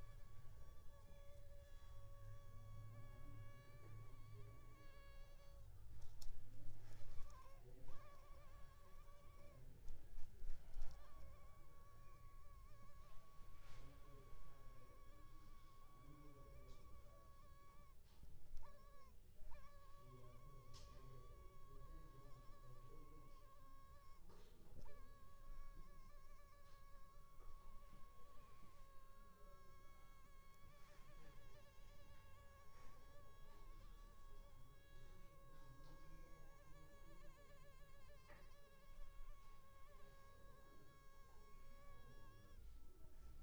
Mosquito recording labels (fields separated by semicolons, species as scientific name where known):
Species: Culex pipiens complex; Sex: female; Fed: unfed; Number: one; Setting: cup